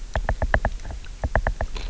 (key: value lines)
label: biophony, knock
recorder: SoundTrap 300